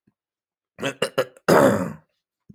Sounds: Throat clearing